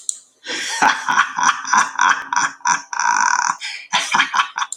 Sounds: Laughter